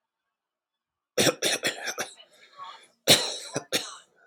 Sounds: Cough